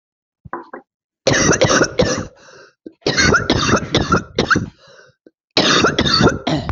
{"expert_labels": [{"quality": "ok", "cough_type": "dry", "dyspnea": false, "wheezing": false, "stridor": false, "choking": false, "congestion": false, "nothing": true, "diagnosis": "COVID-19", "severity": "severe"}], "age": 38, "gender": "female", "respiratory_condition": true, "fever_muscle_pain": false, "status": "symptomatic"}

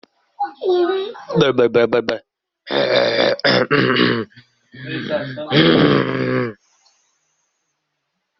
{"expert_labels": [{"quality": "no cough present", "cough_type": "unknown", "dyspnea": false, "wheezing": false, "stridor": false, "choking": false, "congestion": false, "nothing": true, "diagnosis": "healthy cough", "severity": "pseudocough/healthy cough"}], "gender": "female", "respiratory_condition": true, "fever_muscle_pain": true, "status": "COVID-19"}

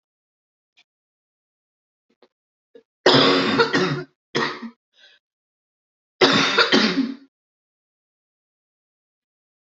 {"expert_labels": [{"quality": "ok", "cough_type": "unknown", "dyspnea": false, "wheezing": false, "stridor": false, "choking": false, "congestion": false, "nothing": true, "diagnosis": "lower respiratory tract infection", "severity": "mild"}], "age": 30, "gender": "female", "respiratory_condition": false, "fever_muscle_pain": true, "status": "symptomatic"}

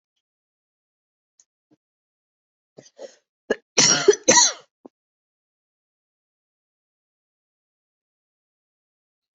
{"expert_labels": [{"quality": "ok", "cough_type": "dry", "dyspnea": false, "wheezing": true, "stridor": false, "choking": false, "congestion": false, "nothing": false, "diagnosis": "COVID-19", "severity": "mild"}]}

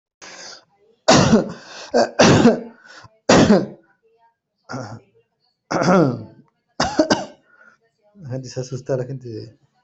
{"expert_labels": [{"quality": "ok", "cough_type": "unknown", "dyspnea": false, "wheezing": false, "stridor": false, "choking": false, "congestion": false, "nothing": true, "diagnosis": "healthy cough", "severity": "pseudocough/healthy cough"}], "age": 42, "gender": "male", "respiratory_condition": false, "fever_muscle_pain": false, "status": "COVID-19"}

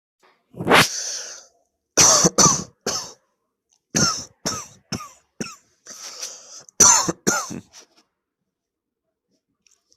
{"expert_labels": [{"quality": "good", "cough_type": "dry", "dyspnea": false, "wheezing": false, "stridor": false, "choking": false, "congestion": false, "nothing": true, "diagnosis": "COVID-19", "severity": "mild"}], "age": 24, "gender": "male", "respiratory_condition": false, "fever_muscle_pain": false, "status": "symptomatic"}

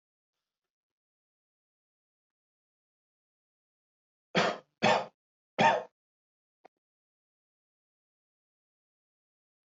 {"expert_labels": [{"quality": "good", "cough_type": "dry", "dyspnea": false, "wheezing": false, "stridor": false, "choking": false, "congestion": false, "nothing": true, "diagnosis": "healthy cough", "severity": "pseudocough/healthy cough"}], "age": 22, "gender": "male", "respiratory_condition": false, "fever_muscle_pain": false, "status": "healthy"}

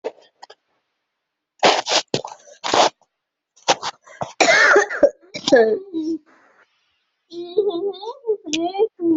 {"expert_labels": [{"quality": "ok", "cough_type": "unknown", "dyspnea": false, "wheezing": false, "stridor": false, "choking": false, "congestion": false, "nothing": true, "diagnosis": "upper respiratory tract infection", "severity": "mild"}], "age": 25, "gender": "female", "respiratory_condition": false, "fever_muscle_pain": true, "status": "symptomatic"}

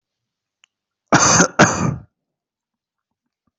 {"expert_labels": [{"quality": "good", "cough_type": "unknown", "dyspnea": false, "wheezing": false, "stridor": false, "choking": false, "congestion": false, "nothing": true, "diagnosis": "COVID-19", "severity": "mild"}], "age": 18, "gender": "female", "respiratory_condition": false, "fever_muscle_pain": false, "status": "healthy"}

